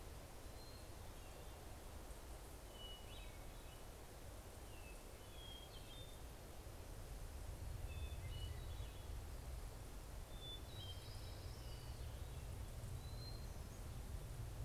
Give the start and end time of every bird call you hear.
0.0s-4.1s: Hermit Thrush (Catharus guttatus)
4.4s-6.6s: Hermit Thrush (Catharus guttatus)
7.2s-9.7s: Hermit Thrush (Catharus guttatus)
10.0s-12.2s: Orange-crowned Warbler (Leiothlypis celata)
10.1s-14.2s: Hermit Thrush (Catharus guttatus)

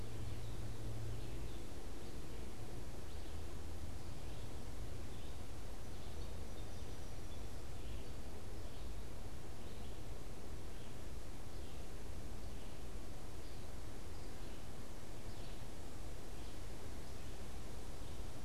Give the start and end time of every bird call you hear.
0.0s-5.6s: Red-eyed Vireo (Vireo olivaceus)
5.6s-7.6s: Song Sparrow (Melospiza melodia)
7.4s-18.4s: Red-eyed Vireo (Vireo olivaceus)

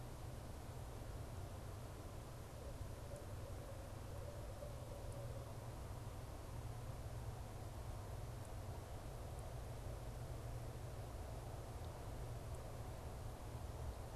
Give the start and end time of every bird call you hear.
2.5s-5.7s: Barred Owl (Strix varia)

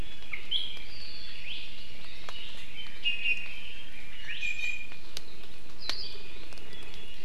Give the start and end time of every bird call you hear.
0.4s-3.1s: Red-billed Leiothrix (Leiothrix lutea)
0.5s-0.9s: Iiwi (Drepanis coccinea)
1.4s-2.3s: Hawaii Amakihi (Chlorodrepanis virens)
1.5s-1.7s: Iiwi (Drepanis coccinea)
3.1s-3.7s: Iiwi (Drepanis coccinea)
4.2s-5.2s: Iiwi (Drepanis coccinea)
5.8s-6.2s: Hawaii Akepa (Loxops coccineus)
6.6s-7.2s: Iiwi (Drepanis coccinea)

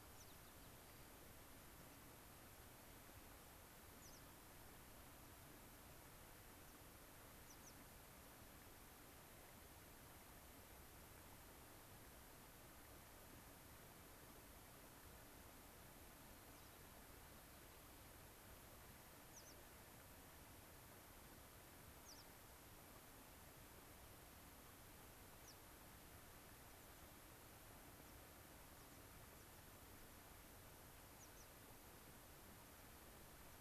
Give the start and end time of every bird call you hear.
0.0s-1.1s: White-crowned Sparrow (Zonotrichia leucophrys)
4.0s-4.2s: American Pipit (Anthus rubescens)
7.4s-7.7s: American Pipit (Anthus rubescens)
16.5s-16.7s: American Pipit (Anthus rubescens)
19.3s-19.5s: American Pipit (Anthus rubescens)
22.0s-22.2s: American Pipit (Anthus rubescens)
25.4s-25.6s: American Pipit (Anthus rubescens)
26.7s-27.0s: American Pipit (Anthus rubescens)
28.0s-28.1s: American Pipit (Anthus rubescens)
28.7s-29.0s: American Pipit (Anthus rubescens)
31.1s-31.5s: American Pipit (Anthus rubescens)

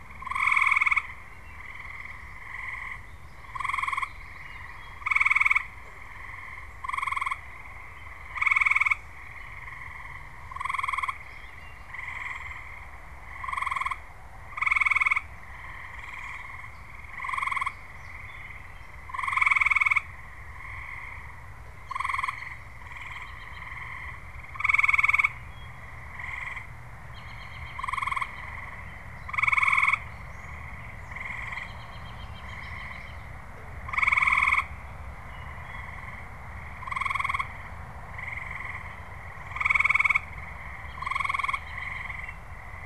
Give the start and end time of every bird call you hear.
3.1s-4.9s: Common Yellowthroat (Geothlypis trichas)
22.6s-33.3s: American Robin (Turdus migratorius)
40.6s-42.5s: American Robin (Turdus migratorius)

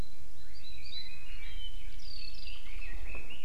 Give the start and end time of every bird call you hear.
0.3s-3.4s: Red-billed Leiothrix (Leiothrix lutea)

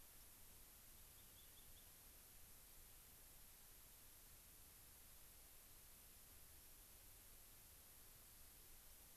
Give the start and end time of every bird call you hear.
0.9s-2.0s: Rock Wren (Salpinctes obsoletus)

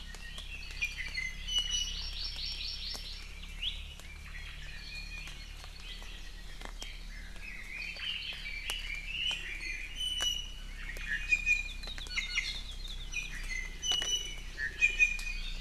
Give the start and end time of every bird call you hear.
0.0s-2.1s: Iiwi (Drepanis coccinea)
1.7s-3.3s: Hawaii Amakihi (Chlorodrepanis virens)
3.5s-3.8s: Iiwi (Drepanis coccinea)
4.6s-5.3s: Iiwi (Drepanis coccinea)
5.3s-6.6s: Apapane (Himatione sanguinea)
7.1s-9.9s: Red-billed Leiothrix (Leiothrix lutea)
9.6s-12.6s: Iiwi (Drepanis coccinea)
13.1s-15.6s: Iiwi (Drepanis coccinea)

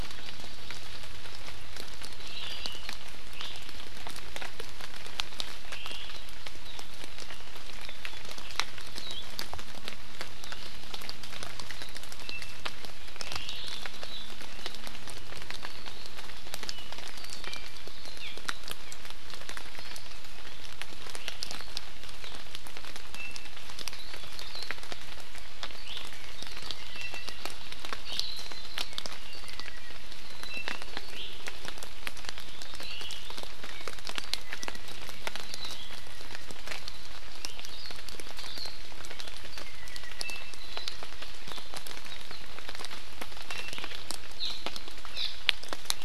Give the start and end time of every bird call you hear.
3.3s-3.5s: Iiwi (Drepanis coccinea)
5.6s-6.1s: Omao (Myadestes obscurus)
8.9s-9.3s: Hawaii Akepa (Loxops coccineus)
12.2s-12.6s: Apapane (Himatione sanguinea)
13.2s-13.8s: Omao (Myadestes obscurus)
16.7s-17.9s: Apapane (Himatione sanguinea)
18.1s-18.3s: Hawaii Amakihi (Chlorodrepanis virens)
18.8s-18.9s: Hawaii Amakihi (Chlorodrepanis virens)
19.7s-20.1s: Hawaii Amakihi (Chlorodrepanis virens)
23.1s-23.5s: Apapane (Himatione sanguinea)
25.8s-26.0s: Iiwi (Drepanis coccinea)
26.7s-27.5s: Apapane (Himatione sanguinea)
28.0s-28.6s: Iiwi (Drepanis coccinea)
28.9s-30.8s: Apapane (Himatione sanguinea)
31.1s-31.3s: Iiwi (Drepanis coccinea)
32.8s-33.2s: Omao (Myadestes obscurus)
33.6s-35.0s: Apapane (Himatione sanguinea)
37.3s-37.6s: Iiwi (Drepanis coccinea)
37.7s-37.9s: Hawaii Akepa (Loxops coccineus)
38.3s-38.8s: Hawaii Akepa (Loxops coccineus)
39.6s-40.9s: Apapane (Himatione sanguinea)
43.5s-43.7s: Apapane (Himatione sanguinea)

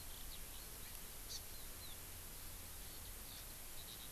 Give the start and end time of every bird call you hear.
0.0s-4.1s: Eurasian Skylark (Alauda arvensis)
1.3s-1.4s: Hawaii Amakihi (Chlorodrepanis virens)

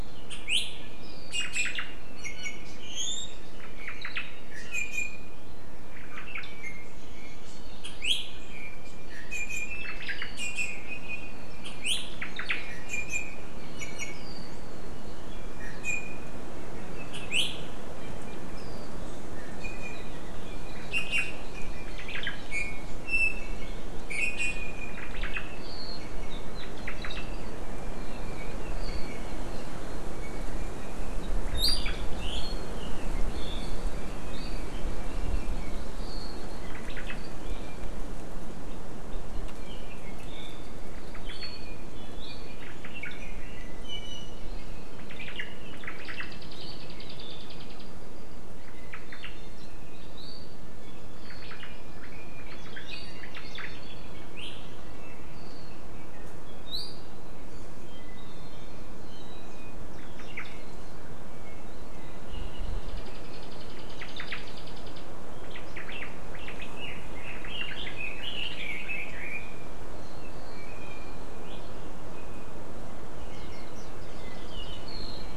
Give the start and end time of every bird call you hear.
1.3s-1.8s: Iiwi (Drepanis coccinea)
1.3s-2.0s: Omao (Myadestes obscurus)
2.2s-2.8s: Iiwi (Drepanis coccinea)
3.6s-4.3s: Omao (Myadestes obscurus)
4.5s-5.5s: Iiwi (Drepanis coccinea)
5.9s-6.5s: Omao (Myadestes obscurus)
6.5s-7.0s: Iiwi (Drepanis coccinea)
8.5s-10.1s: Iiwi (Drepanis coccinea)
9.8s-10.3s: Omao (Myadestes obscurus)
10.4s-11.6s: Iiwi (Drepanis coccinea)
12.2s-12.6s: Omao (Myadestes obscurus)
12.6s-14.2s: Iiwi (Drepanis coccinea)
15.3s-16.4s: Iiwi (Drepanis coccinea)
19.4s-20.4s: Iiwi (Drepanis coccinea)
20.9s-21.5s: Iiwi (Drepanis coccinea)
21.9s-22.4s: Omao (Myadestes obscurus)
22.5s-25.1s: Iiwi (Drepanis coccinea)
25.0s-25.6s: Omao (Myadestes obscurus)
26.0s-26.6s: Iiwi (Drepanis coccinea)
26.5s-27.3s: Omao (Myadestes obscurus)
31.5s-32.1s: Omao (Myadestes obscurus)
34.9s-36.0s: Hawaii Amakihi (Chlorodrepanis virens)
36.6s-37.2s: Omao (Myadestes obscurus)
39.6s-40.7s: Apapane (Himatione sanguinea)
40.9s-41.5s: Omao (Myadestes obscurus)
41.3s-42.7s: Iiwi (Drepanis coccinea)
42.6s-43.1s: Omao (Myadestes obscurus)
43.9s-44.4s: Iiwi (Drepanis coccinea)
45.0s-46.4s: Omao (Myadestes obscurus)
48.7s-49.4s: Omao (Myadestes obscurus)
49.1s-49.7s: Iiwi (Drepanis coccinea)
51.3s-52.0s: Omao (Myadestes obscurus)
52.4s-53.7s: Omao (Myadestes obscurus)
53.4s-54.3s: Apapane (Himatione sanguinea)
54.8s-55.3s: Iiwi (Drepanis coccinea)
57.9s-59.9s: Iiwi (Drepanis coccinea)
60.0s-60.5s: Omao (Myadestes obscurus)
64.0s-64.4s: Omao (Myadestes obscurus)
65.5s-66.8s: Omao (Myadestes obscurus)
66.8s-69.7s: Red-billed Leiothrix (Leiothrix lutea)
70.5s-71.2s: Iiwi (Drepanis coccinea)
72.1s-72.7s: Iiwi (Drepanis coccinea)
73.2s-73.7s: Iiwi (Drepanis coccinea)

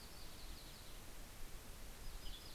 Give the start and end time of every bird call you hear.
0.0s-1.0s: Golden-crowned Kinglet (Regulus satrapa)
0.0s-2.5s: Western Tanager (Piranga ludoviciana)

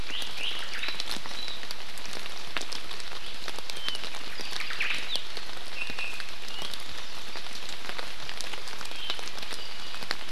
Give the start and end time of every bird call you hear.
0.0s-0.6s: Iiwi (Drepanis coccinea)
0.6s-0.9s: Omao (Myadestes obscurus)
4.3s-5.0s: Omao (Myadestes obscurus)
5.7s-6.3s: Iiwi (Drepanis coccinea)

